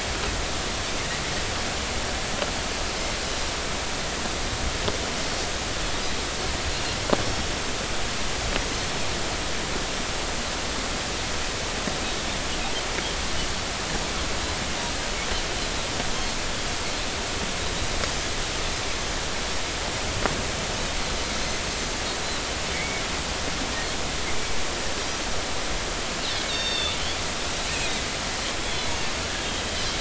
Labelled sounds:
7.2	7.5	Pacific white-sided dolphin, 5.4 to 5.6 kHz
16.1	16.3	Pacific white-sided dolphin, 6.1 to 6.5 kHz
22.7	23.0	Pacific white-sided dolphin, 1.9 to 2.3 kHz
26.5	27.0	Pacific white-sided dolphin, 2.6 to 5.5 kHz
27.7	28.0	Pacific white-sided dolphin, 2.4 to 4.0 kHz

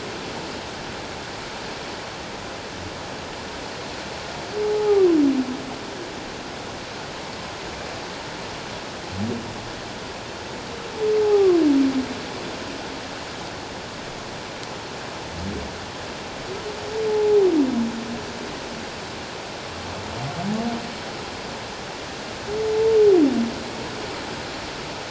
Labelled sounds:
4.7	5.1	humpback whale, 0.78 to 0.94 kHz
11.2	11.6	humpback whale, 0.78 to 1.3 kHz
17.1	17.4	humpback whale, 0.81 to 0.91 kHz

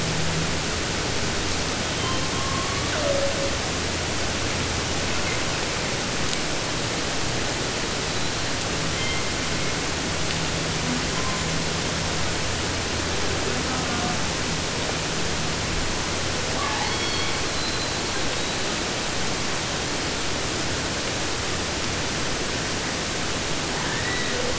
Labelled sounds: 1.8	3.6	killer whale, southern resident, J pod, call S01, 0.45 to 6.7 kHz
7.9	8.5	killer whale, 3.7 to 4.4 kHz
8.9	9.9	killer whale, 1.2 to 3.5 kHz
11.1	11.6	killer whale, 0.76 to 7.6 kHz
13.6	14.2	killer whale, southern resident, J pod, call S04, 0.45 to 1.8 kHz
16.6	17.5	killer whale, southern resident, J pod, call S44, 0.50 to 6.4 kHz
17.4	18.9	killer whale, 3.4 to 4.4 kHz
23.7	24.5	killer whale, 0.17 to 4.9 kHz

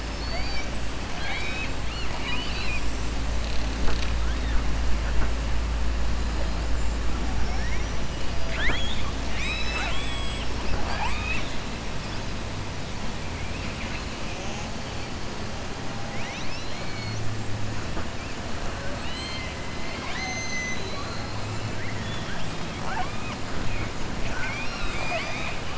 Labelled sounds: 0.0	0.7	killer whale, southern resident, 0.67 to 6.0 kHz
1.1	2.9	killer whale, southern resident, 0.74 to 5.4 kHz
7.3	8.0	killer whale, southern resident, 5.3 to 6.0 kHz
9.2	11.6	killer whale, southern resident, 0.41 to 8.0 kHz
16.0	17.3	killer whale, southern resident, 1.9 to 6.6 kHz
18.7	21.3	killer whale, southern resident, 0.57 to 6.5 kHz
21.7	22.5	killer whale, southern resident, 1.5 to 3.5 kHz
24.2	25.7	killer whale, southern resident, 0.66 to 7.8 kHz

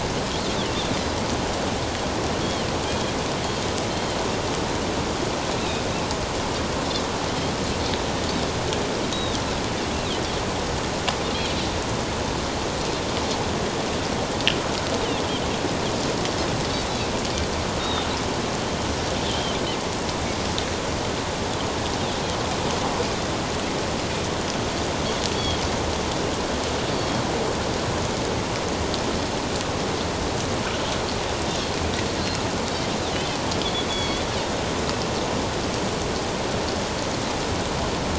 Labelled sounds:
2.4	3.1	Pacific white-sided dolphin, 2.9 to 3.4 kHz
3.9	4.2	Pacific white-sided dolphin, 3.0 to 4.3 kHz
9.1	9.4	Pacific white-sided dolphin, 3.6 to 3.9 kHz
17.8	18.1	Pacific white-sided dolphin, 3.6 to 4.0 kHz
19.3	19.6	Pacific white-sided dolphin, 3.0 to 3.3 kHz
25.3	25.6	Pacific white-sided dolphin, 3.2 to 3.4 kHz
32.2	34.3	Pacific white-sided dolphin, 2.2 to 4.6 kHz

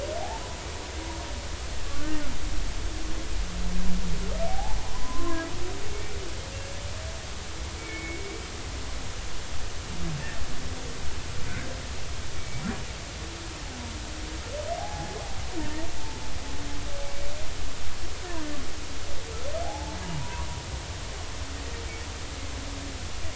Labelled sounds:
1.9	2.2	humpback whale, 1.3 to 1.6 kHz
4.5	5.4	humpback whale, 0.80 to 1.1 kHz
5.8	6.1	humpback whale, 2.1 to 2.4 kHz
7.8	8.3	humpback whale, 2.1 to 2.3 kHz
12.4	12.6	humpback whale, 2.2 to 2.3 kHz
14.8	15.2	humpback whale, 0.80 to 0.90 kHz
17.0	17.3	humpback whale, 2.2 to 2.3 kHz
19.6	20.5	humpback whale, 0.80 to 1.2 kHz

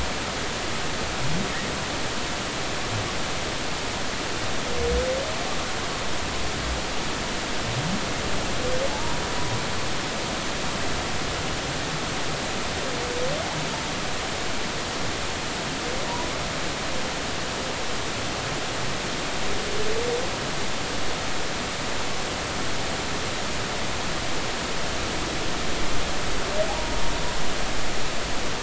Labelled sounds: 8.9	9.2	humpback whale, 0.80 to 1.1 kHz
26.7	27.0	humpback whale, 0.80 to 0.99 kHz

